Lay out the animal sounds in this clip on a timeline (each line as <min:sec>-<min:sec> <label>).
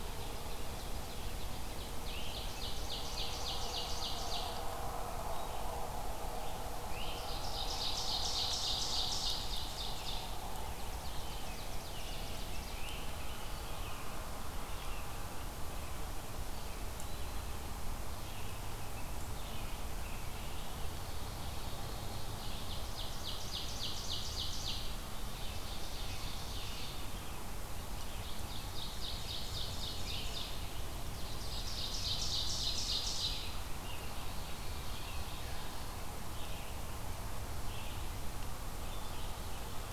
0:00.0-0:04.7 Ovenbird (Seiurus aurocapilla)
0:01.0-0:39.9 Red-eyed Vireo (Vireo olivaceus)
0:02.0-0:02.4 Great Crested Flycatcher (Myiarchus crinitus)
0:06.7-0:10.3 Ovenbird (Seiurus aurocapilla)
0:06.8-0:07.2 Great Crested Flycatcher (Myiarchus crinitus)
0:10.6-0:12.9 Ovenbird (Seiurus aurocapilla)
0:11.0-0:14.3 American Robin (Turdus migratorius)
0:12.6-0:13.2 Great Crested Flycatcher (Myiarchus crinitus)
0:16.3-0:17.6 Eastern Wood-Pewee (Contopus virens)
0:18.1-0:20.5 American Robin (Turdus migratorius)
0:20.5-0:27.2 Ovenbird (Seiurus aurocapilla)
0:28.0-0:30.7 Ovenbird (Seiurus aurocapilla)
0:29.8-0:30.3 Great Crested Flycatcher (Myiarchus crinitus)
0:31.0-0:36.0 Ovenbird (Seiurus aurocapilla)
0:32.9-0:35.4 American Robin (Turdus migratorius)